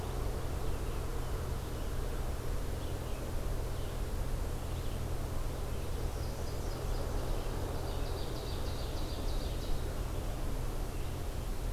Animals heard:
Red-eyed Vireo (Vireo olivaceus), Nashville Warbler (Leiothlypis ruficapilla), Ovenbird (Seiurus aurocapilla)

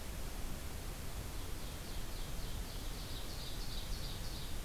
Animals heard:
Ovenbird (Seiurus aurocapilla)

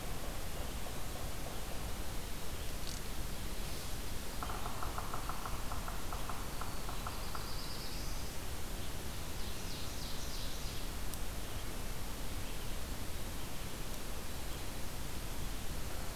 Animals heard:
Black-throated Blue Warbler (Setophaga caerulescens), Black-throated Green Warbler (Setophaga virens), Yellow-bellied Sapsucker (Sphyrapicus varius), Ovenbird (Seiurus aurocapilla), Red-eyed Vireo (Vireo olivaceus)

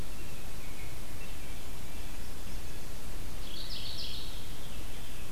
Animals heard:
Veery (Catharus fuscescens), American Robin (Turdus migratorius), Mourning Warbler (Geothlypis philadelphia)

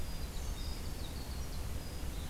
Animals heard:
Winter Wren (Troglodytes hiemalis)

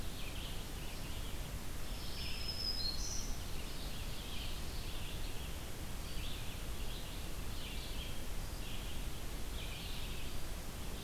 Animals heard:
Black-throated Green Warbler (Setophaga virens), Red-eyed Vireo (Vireo olivaceus)

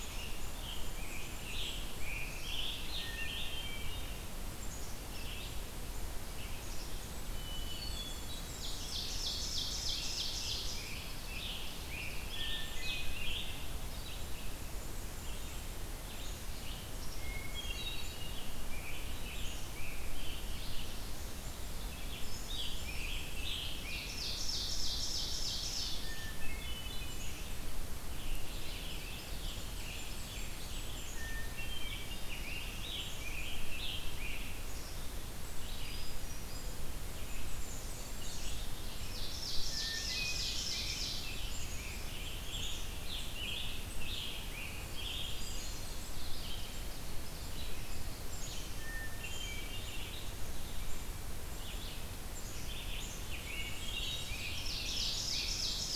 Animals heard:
Blackburnian Warbler (Setophaga fusca), Scarlet Tanager (Piranga olivacea), Red-eyed Vireo (Vireo olivaceus), Ovenbird (Seiurus aurocapilla), Black-capped Chickadee (Poecile atricapillus), Hermit Thrush (Catharus guttatus)

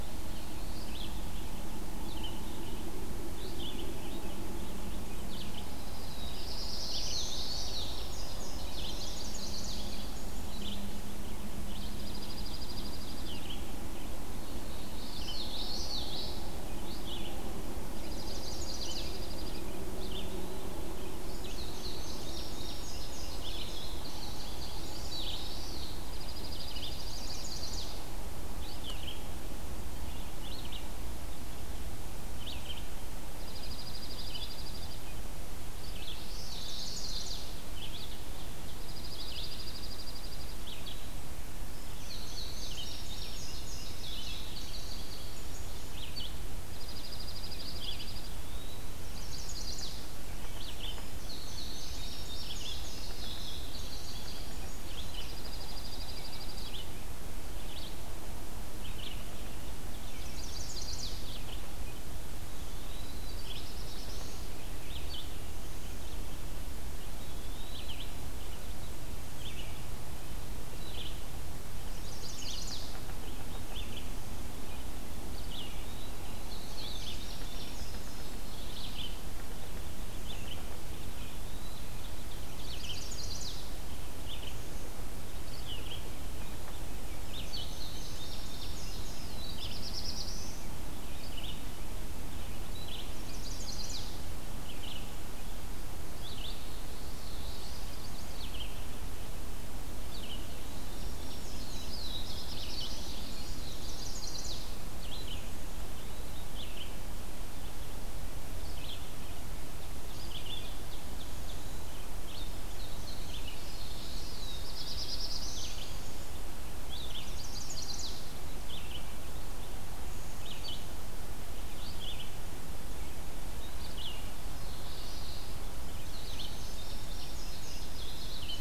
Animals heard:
Black-throated Blue Warbler (Setophaga caerulescens), Dark-eyed Junco (Junco hyemalis), Indigo Bunting (Passerina cyanea), Chestnut-sided Warbler (Setophaga pensylvanica), Common Yellowthroat (Geothlypis trichas), Red-eyed Vireo (Vireo olivaceus), Ovenbird (Seiurus aurocapilla), Eastern Wood-Pewee (Contopus virens)

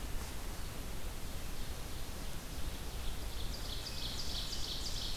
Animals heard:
Ovenbird (Seiurus aurocapilla)

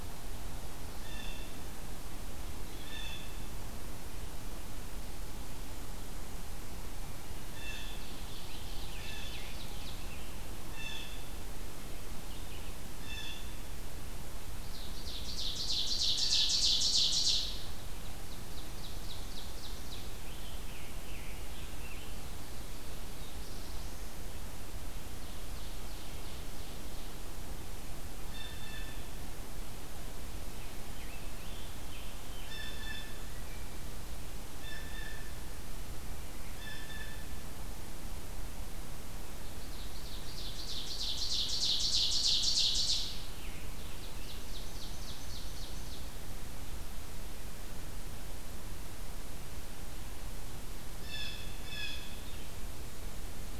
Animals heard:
Scarlet Tanager (Piranga olivacea), Blue Jay (Cyanocitta cristata), Black-throated Blue Warbler (Setophaga caerulescens), Ovenbird (Seiurus aurocapilla)

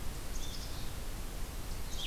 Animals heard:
Black-capped Chickadee (Poecile atricapillus), Red-eyed Vireo (Vireo olivaceus)

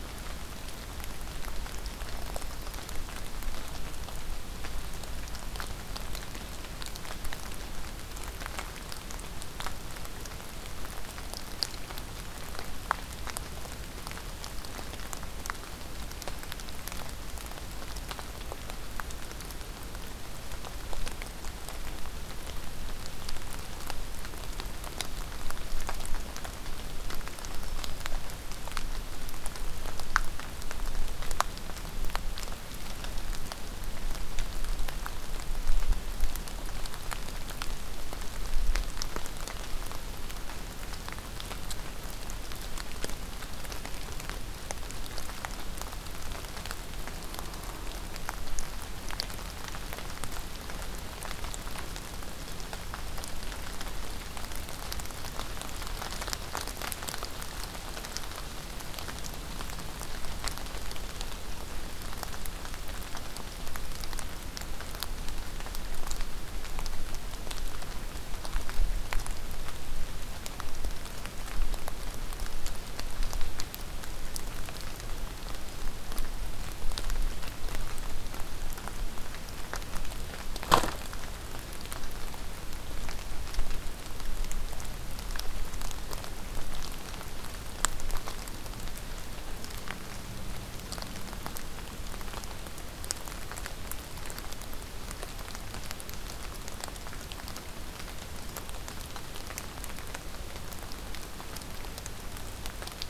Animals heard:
Black-throated Green Warbler (Setophaga virens)

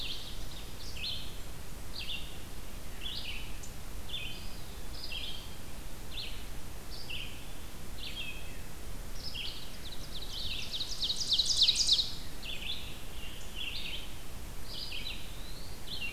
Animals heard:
Blackburnian Warbler (Setophaga fusca), Ovenbird (Seiurus aurocapilla), Eastern Wood-Pewee (Contopus virens), Scarlet Tanager (Piranga olivacea), Red-eyed Vireo (Vireo olivaceus)

